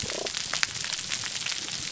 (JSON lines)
{"label": "biophony, damselfish", "recorder": "SoundTrap 300"}